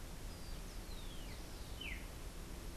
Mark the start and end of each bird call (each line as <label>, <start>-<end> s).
Rufous-collared Sparrow (Zonotrichia capensis), 0.0-1.5 s
Streaked Saltator (Saltator striatipectus), 1.0-2.2 s